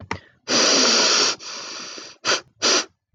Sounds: Throat clearing